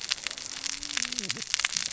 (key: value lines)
label: biophony, cascading saw
recorder: SoundTrap 600 or HydroMoth